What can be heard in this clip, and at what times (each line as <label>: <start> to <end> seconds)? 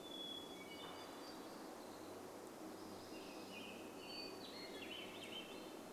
Hermit Thrush song: 0 to 2 seconds
warbler song: 0 to 2 seconds
vehicle engine: 0 to 6 seconds
unidentified sound: 2 to 4 seconds
Western Tanager song: 2 to 6 seconds
Hermit Thrush song: 4 to 6 seconds
Swainson's Thrush song: 4 to 6 seconds